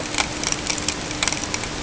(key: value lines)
label: ambient
recorder: HydroMoth